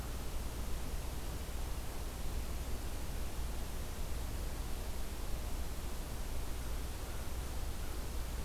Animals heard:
forest ambience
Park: Marsh-Billings-Rockefeller National Historical Park